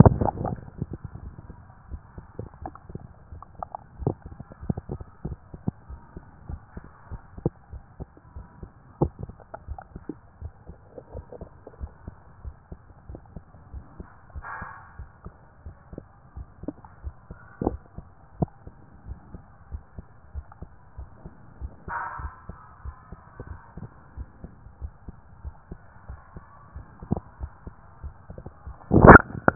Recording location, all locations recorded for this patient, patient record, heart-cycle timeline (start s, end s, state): tricuspid valve (TV)
aortic valve (AV)+pulmonary valve (PV)+tricuspid valve (TV)+mitral valve (MV)
#Age: Child
#Sex: Female
#Height: nan
#Weight: nan
#Pregnancy status: False
#Murmur: Absent
#Murmur locations: nan
#Most audible location: nan
#Systolic murmur timing: nan
#Systolic murmur shape: nan
#Systolic murmur grading: nan
#Systolic murmur pitch: nan
#Systolic murmur quality: nan
#Diastolic murmur timing: nan
#Diastolic murmur shape: nan
#Diastolic murmur grading: nan
#Diastolic murmur pitch: nan
#Diastolic murmur quality: nan
#Outcome: Abnormal
#Campaign: 2014 screening campaign
0.00	5.90	unannotated
5.90	6.00	S1
6.00	6.14	systole
6.14	6.24	S2
6.24	6.48	diastole
6.48	6.60	S1
6.60	6.76	systole
6.76	6.84	S2
6.84	7.10	diastole
7.10	7.22	S1
7.22	7.42	systole
7.42	7.52	S2
7.52	7.72	diastole
7.72	7.82	S1
7.82	7.98	systole
7.98	8.08	S2
8.08	8.34	diastole
8.34	8.46	S1
8.46	8.60	systole
8.60	8.70	S2
8.70	9.00	diastole
9.00	9.12	S1
9.12	9.22	systole
9.22	9.34	S2
9.34	9.68	diastole
9.68	9.78	S1
9.78	9.96	systole
9.96	10.04	S2
10.04	10.42	diastole
10.42	10.52	S1
10.52	10.68	systole
10.68	10.78	S2
10.78	11.14	diastole
11.14	11.24	S1
11.24	11.40	systole
11.40	11.50	S2
11.50	11.80	diastole
11.80	11.92	S1
11.92	12.06	systole
12.06	12.16	S2
12.16	12.44	diastole
12.44	12.54	S1
12.54	12.70	systole
12.70	12.80	S2
12.80	13.08	diastole
13.08	13.20	S1
13.20	13.34	systole
13.34	13.44	S2
13.44	13.72	diastole
13.72	13.84	S1
13.84	13.98	systole
13.98	14.08	S2
14.08	14.34	diastole
14.34	14.46	S1
14.46	14.60	systole
14.60	14.70	S2
14.70	14.98	diastole
14.98	15.08	S1
15.08	15.24	systole
15.24	15.34	S2
15.34	15.64	diastole
15.64	15.76	S1
15.76	15.92	systole
15.92	16.02	S2
16.02	16.36	diastole
16.36	16.48	S1
16.48	16.64	systole
16.64	16.76	S2
16.76	17.04	diastole
17.04	17.14	S1
17.14	17.30	systole
17.30	17.38	S2
17.38	17.64	diastole
17.64	17.76	S1
17.76	17.96	systole
17.96	18.06	S2
18.06	18.38	diastole
18.38	18.50	S1
18.50	18.66	systole
18.66	18.74	S2
18.74	19.06	diastole
19.06	19.18	S1
19.18	19.32	systole
19.32	19.42	S2
19.42	19.70	diastole
19.70	19.82	S1
19.82	19.96	systole
19.96	20.06	S2
20.06	20.34	diastole
20.34	20.46	S1
20.46	20.60	systole
20.60	20.70	S2
20.70	20.98	diastole
20.98	21.08	S1
21.08	21.24	systole
21.24	21.34	S2
21.34	21.60	diastole
21.60	21.72	S1
21.72	21.86	systole
21.86	21.94	S2
21.94	22.20	diastole
22.20	22.32	S1
22.32	22.48	systole
22.48	22.58	S2
22.58	22.84	diastole
22.84	22.96	S1
22.96	23.10	systole
23.10	23.18	S2
23.18	23.46	diastole
23.46	23.58	S1
23.58	23.78	systole
23.78	23.88	S2
23.88	24.16	diastole
24.16	24.28	S1
24.28	24.42	systole
24.42	24.52	S2
24.52	24.80	diastole
24.80	24.92	S1
24.92	25.06	systole
25.06	25.16	S2
25.16	25.44	diastole
25.44	25.54	S1
25.54	25.70	systole
25.70	25.80	S2
25.80	26.08	diastole
26.08	26.20	S1
26.20	26.36	systole
26.36	26.44	S2
26.44	26.76	diastole
26.76	29.55	unannotated